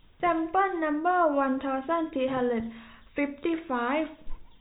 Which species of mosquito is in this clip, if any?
no mosquito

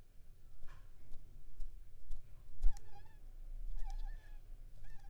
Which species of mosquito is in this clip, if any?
Anopheles arabiensis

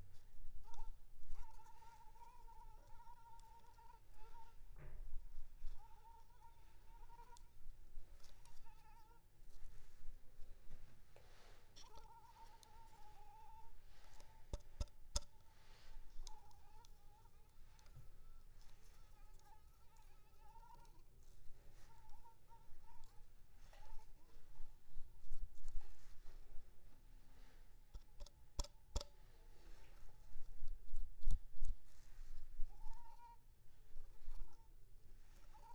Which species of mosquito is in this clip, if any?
Anopheles arabiensis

